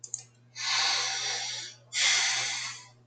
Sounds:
Sigh